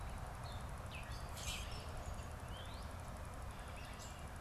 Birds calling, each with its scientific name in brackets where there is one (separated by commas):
Gray Catbird (Dumetella carolinensis), Common Grackle (Quiscalus quiscula)